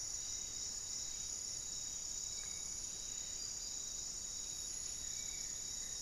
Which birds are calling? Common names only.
Buff-throated Woodcreeper, Spot-winged Antshrike, Buff-breasted Wren, Goeldi's Antbird